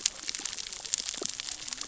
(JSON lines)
{"label": "biophony, cascading saw", "recorder": "SoundTrap 600 or HydroMoth"}